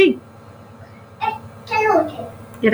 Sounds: Sneeze